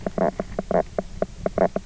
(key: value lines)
label: biophony, knock croak
recorder: SoundTrap 300